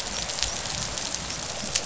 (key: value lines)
label: biophony, dolphin
recorder: SoundTrap 500